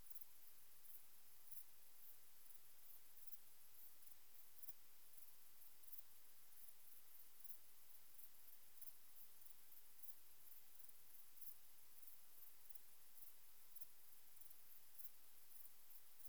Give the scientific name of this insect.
Pholidoptera griseoaptera